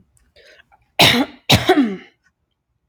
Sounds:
Throat clearing